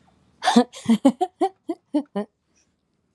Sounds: Laughter